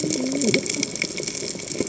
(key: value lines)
label: biophony, cascading saw
recorder: HydroMoth